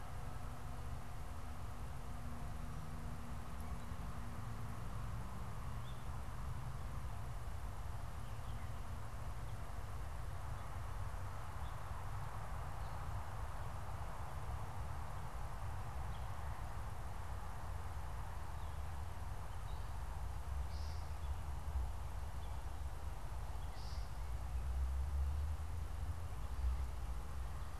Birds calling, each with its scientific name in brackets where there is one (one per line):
American Woodcock (Scolopax minor)